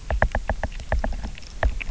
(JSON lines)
{"label": "biophony, knock", "recorder": "SoundTrap 300"}